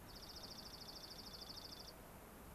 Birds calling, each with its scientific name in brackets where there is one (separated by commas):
Dark-eyed Junco (Junco hyemalis)